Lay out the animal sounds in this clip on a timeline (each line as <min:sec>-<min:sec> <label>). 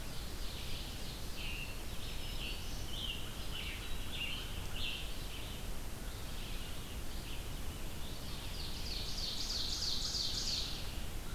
0:00.0-0:01.7 Ovenbird (Seiurus aurocapilla)
0:00.0-0:11.3 Red-eyed Vireo (Vireo olivaceus)
0:01.3-0:05.4 Scarlet Tanager (Piranga olivacea)
0:07.8-0:11.0 Ovenbird (Seiurus aurocapilla)